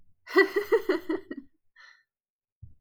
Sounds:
Laughter